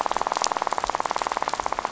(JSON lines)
{"label": "biophony, rattle", "recorder": "SoundTrap 500"}